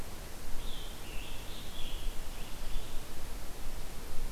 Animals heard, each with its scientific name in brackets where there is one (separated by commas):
Red-eyed Vireo (Vireo olivaceus), Scarlet Tanager (Piranga olivacea)